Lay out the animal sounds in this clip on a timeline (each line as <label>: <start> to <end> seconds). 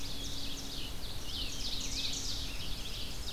Ovenbird (Seiurus aurocapilla): 0.0 to 3.3 seconds
Red-eyed Vireo (Vireo olivaceus): 0.0 to 3.3 seconds